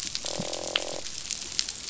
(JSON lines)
{"label": "biophony, croak", "recorder": "SoundTrap 500"}